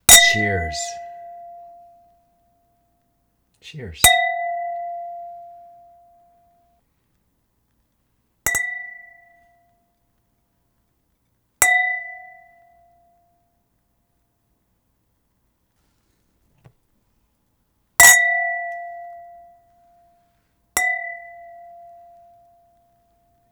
how many times is the chime made?
six